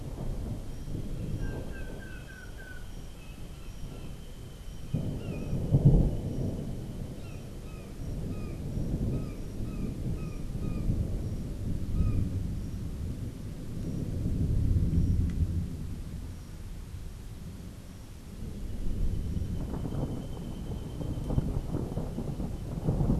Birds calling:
Long-tailed Manakin (Chiroxiphia linearis), Brown Jay (Psilorhinus morio)

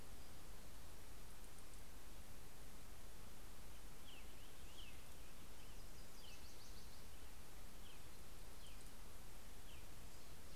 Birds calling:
American Robin (Turdus migratorius), Nashville Warbler (Leiothlypis ruficapilla)

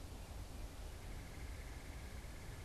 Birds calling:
Red-bellied Woodpecker (Melanerpes carolinus)

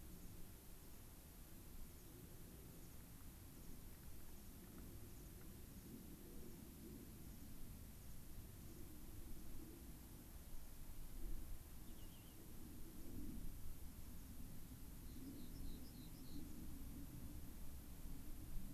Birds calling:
unidentified bird, Rock Wren (Salpinctes obsoletus), American Pipit (Anthus rubescens)

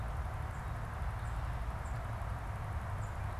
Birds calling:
Tufted Titmouse (Baeolophus bicolor)

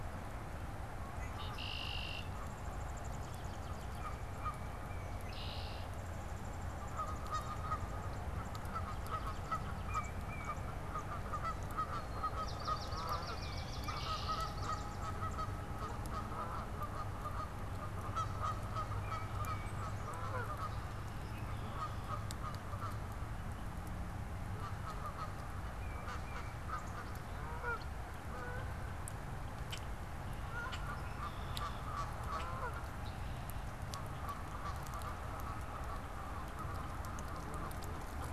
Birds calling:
Common Grackle (Quiscalus quiscula), Swamp Sparrow (Melospiza georgiana), Tufted Titmouse (Baeolophus bicolor), Canada Goose (Branta canadensis), Red-winged Blackbird (Agelaius phoeniceus), Black-capped Chickadee (Poecile atricapillus)

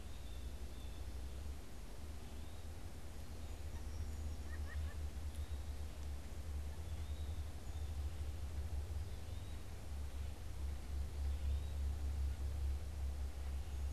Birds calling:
White-breasted Nuthatch (Sitta carolinensis), Eastern Wood-Pewee (Contopus virens), Blue Jay (Cyanocitta cristata)

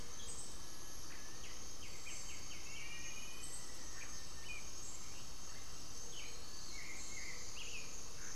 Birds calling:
Black-faced Antthrush (Formicarius analis), Gray-fronted Dove (Leptotila rufaxilla), White-winged Becard (Pachyramphus polychopterus)

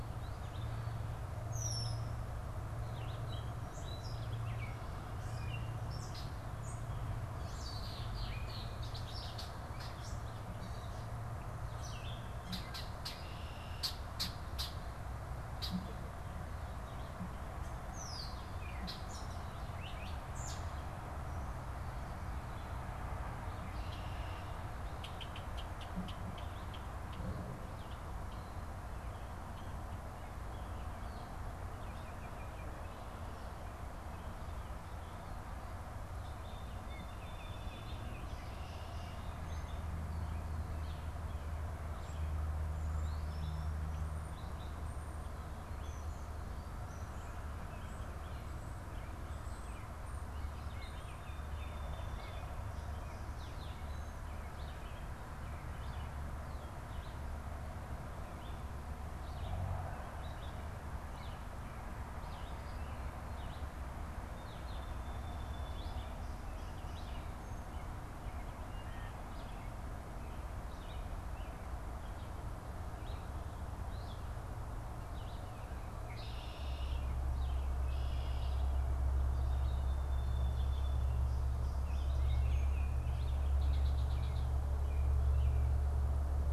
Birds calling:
Song Sparrow (Melospiza melodia), Baltimore Oriole (Icterus galbula), Red-eyed Vireo (Vireo olivaceus), Red-winged Blackbird (Agelaius phoeniceus), Gray Catbird (Dumetella carolinensis)

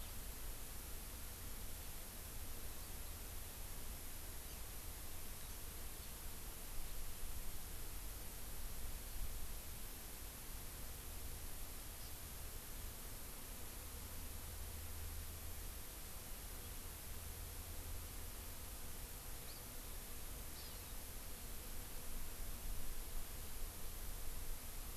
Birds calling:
Hawaii Amakihi (Chlorodrepanis virens)

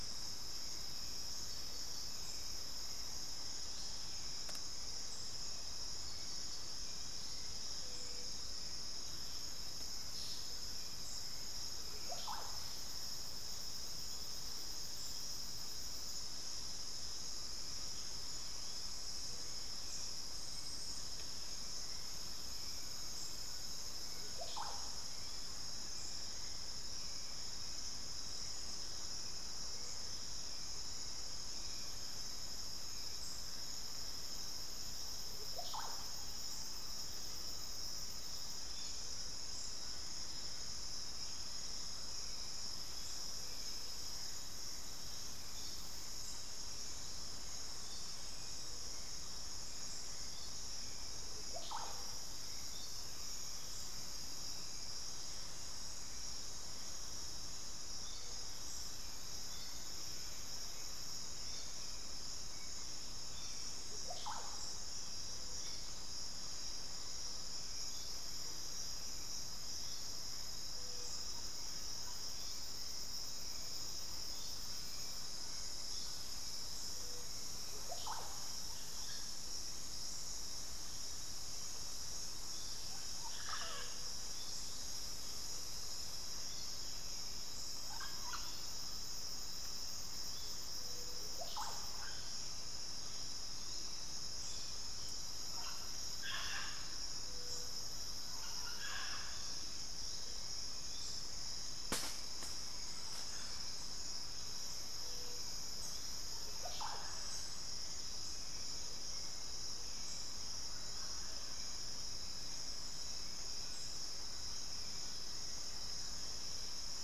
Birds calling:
Hauxwell's Thrush (Turdus hauxwelli), Undulated Tinamou (Crypturellus undulatus), Fasciated Antshrike (Cymbilaimus lineatus), Mealy Parrot (Amazona farinosa), unidentified bird, Russet-backed Oropendola (Psarocolius angustifrons)

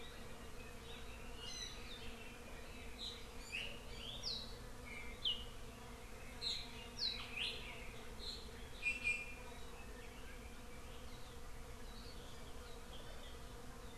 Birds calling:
Iiwi (Drepanis coccinea)

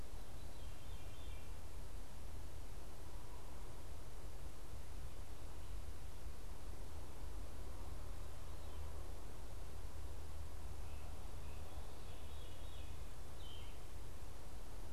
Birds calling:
Veery (Catharus fuscescens)

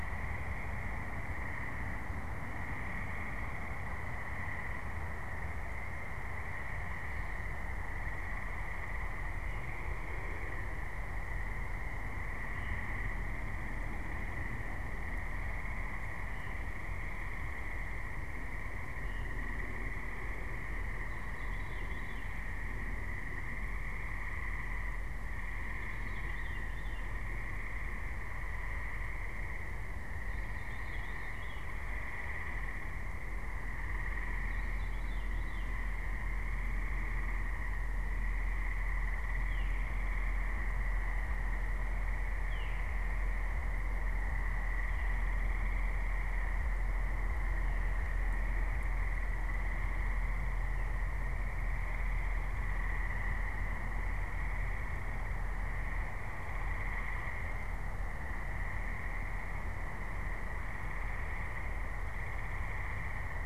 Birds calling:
Veery (Catharus fuscescens)

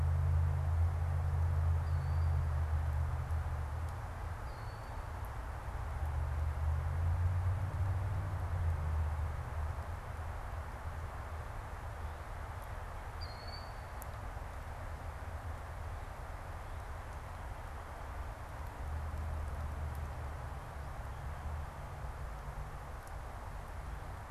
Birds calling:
Killdeer (Charadrius vociferus)

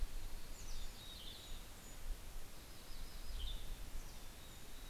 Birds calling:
Yellow-rumped Warbler (Setophaga coronata), Golden-crowned Kinglet (Regulus satrapa), Mountain Chickadee (Poecile gambeli), Western Tanager (Piranga ludoviciana)

